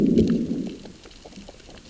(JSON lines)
{"label": "biophony, growl", "recorder": "SoundTrap 600 or HydroMoth"}